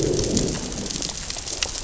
{"label": "biophony, growl", "recorder": "SoundTrap 600 or HydroMoth"}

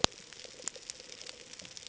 {"label": "ambient", "recorder": "HydroMoth"}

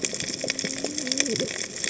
{"label": "biophony, cascading saw", "recorder": "HydroMoth"}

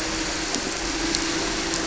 {"label": "anthrophony, boat engine", "recorder": "SoundTrap 300"}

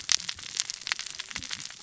{"label": "biophony, cascading saw", "recorder": "SoundTrap 600 or HydroMoth"}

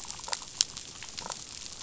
{"label": "biophony, damselfish", "recorder": "SoundTrap 500"}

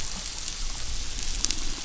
{"label": "biophony", "recorder": "SoundTrap 500"}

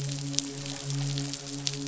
{"label": "biophony, midshipman", "recorder": "SoundTrap 500"}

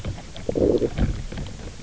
{"label": "biophony, low growl", "recorder": "SoundTrap 300"}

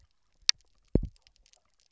{"label": "biophony, double pulse", "recorder": "SoundTrap 300"}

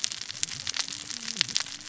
{"label": "biophony, cascading saw", "recorder": "SoundTrap 600 or HydroMoth"}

